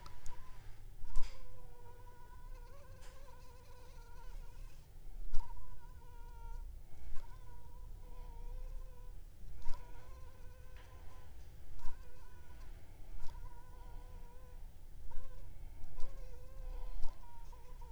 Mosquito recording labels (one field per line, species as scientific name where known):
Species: Anopheles funestus s.s.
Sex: female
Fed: unfed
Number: one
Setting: cup